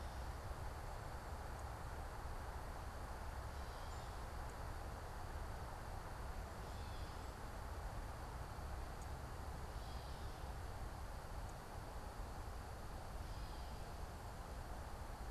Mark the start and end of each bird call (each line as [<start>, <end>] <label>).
[6.48, 15.30] Gray Catbird (Dumetella carolinensis)